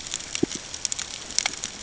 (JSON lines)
{"label": "ambient", "recorder": "HydroMoth"}